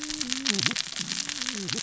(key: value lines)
label: biophony, cascading saw
recorder: SoundTrap 600 or HydroMoth